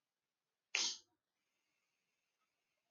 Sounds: Sniff